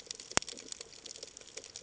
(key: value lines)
label: ambient
recorder: HydroMoth